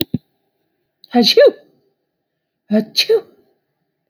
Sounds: Sneeze